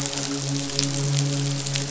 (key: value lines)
label: biophony, midshipman
recorder: SoundTrap 500